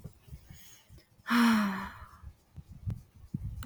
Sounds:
Sigh